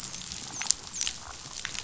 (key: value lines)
label: biophony, dolphin
recorder: SoundTrap 500